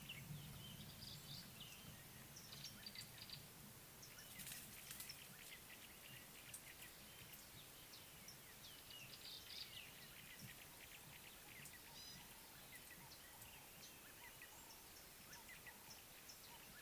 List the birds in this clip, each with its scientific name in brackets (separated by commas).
Gray-backed Camaroptera (Camaroptera brevicaudata), Ring-necked Dove (Streptopelia capicola)